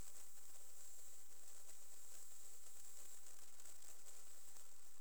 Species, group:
Leptophyes punctatissima
Orthoptera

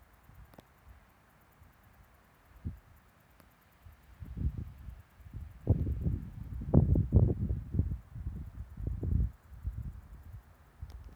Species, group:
Tettigettalna argentata
Cicadidae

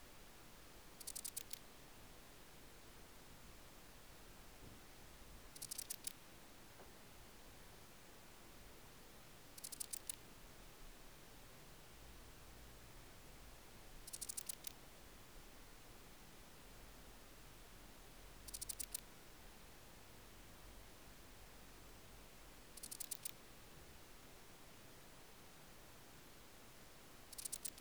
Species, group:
Poecilimon paros
Orthoptera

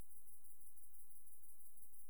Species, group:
Tettigonia viridissima
Orthoptera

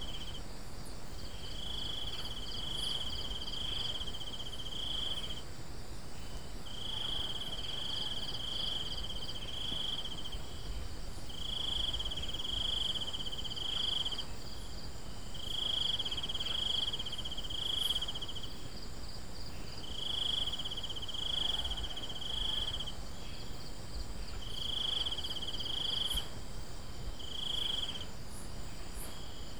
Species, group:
Teleogryllus mitratus
Orthoptera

